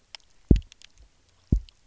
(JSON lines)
{"label": "biophony, double pulse", "recorder": "SoundTrap 300"}